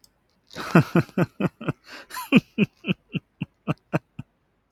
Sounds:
Laughter